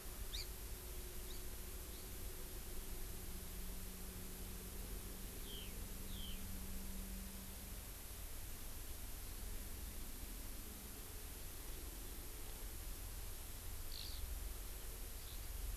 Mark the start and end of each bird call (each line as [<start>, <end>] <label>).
[0.30, 0.50] Hawaii Amakihi (Chlorodrepanis virens)
[5.40, 5.70] Eurasian Skylark (Alauda arvensis)
[6.00, 6.40] Eurasian Skylark (Alauda arvensis)
[13.90, 14.20] Eurasian Skylark (Alauda arvensis)
[15.20, 15.50] Eurasian Skylark (Alauda arvensis)